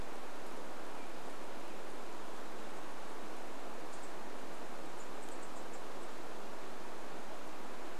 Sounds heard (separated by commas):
unidentified sound, unidentified bird chip note